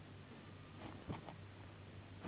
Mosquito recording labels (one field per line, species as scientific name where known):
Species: Anopheles gambiae s.s.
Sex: female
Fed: unfed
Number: one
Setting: insect culture